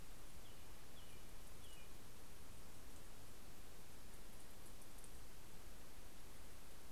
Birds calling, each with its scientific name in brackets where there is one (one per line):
American Robin (Turdus migratorius)